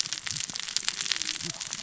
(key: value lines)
label: biophony, cascading saw
recorder: SoundTrap 600 or HydroMoth